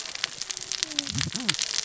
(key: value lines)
label: biophony, cascading saw
recorder: SoundTrap 600 or HydroMoth